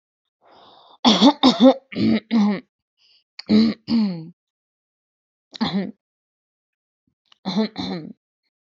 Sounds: Throat clearing